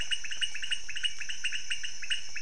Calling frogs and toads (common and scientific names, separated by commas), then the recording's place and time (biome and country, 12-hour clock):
pointedbelly frog (Leptodactylus podicipinus)
Cerrado, Brazil, 12:00am